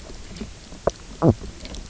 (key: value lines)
label: biophony, knock croak
recorder: SoundTrap 300